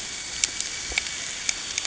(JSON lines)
{"label": "anthrophony, boat engine", "recorder": "HydroMoth"}